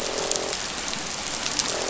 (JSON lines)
{"label": "biophony, croak", "recorder": "SoundTrap 500"}